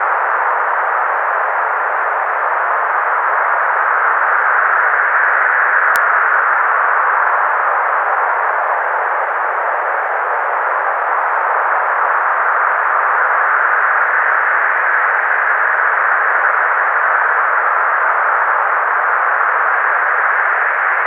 does the water change in rhythm at all?
yes